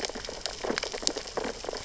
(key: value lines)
label: biophony, sea urchins (Echinidae)
recorder: SoundTrap 600 or HydroMoth